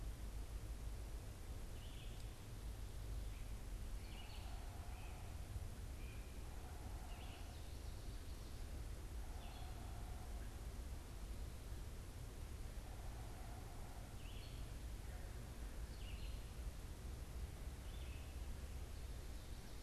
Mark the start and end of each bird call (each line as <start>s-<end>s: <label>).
0.0s-19.8s: Red-eyed Vireo (Vireo olivaceus)